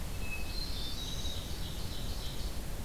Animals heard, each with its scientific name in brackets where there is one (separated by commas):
Hermit Thrush (Catharus guttatus), Black-throated Blue Warbler (Setophaga caerulescens), Ovenbird (Seiurus aurocapilla)